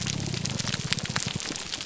{"label": "biophony, grouper groan", "recorder": "SoundTrap 300"}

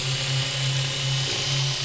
{"label": "anthrophony, boat engine", "recorder": "SoundTrap 500"}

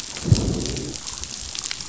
{"label": "biophony, growl", "recorder": "SoundTrap 500"}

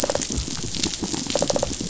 {"label": "biophony", "recorder": "SoundTrap 500"}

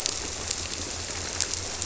{"label": "biophony", "recorder": "SoundTrap 300"}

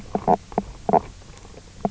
{"label": "biophony, knock croak", "recorder": "SoundTrap 300"}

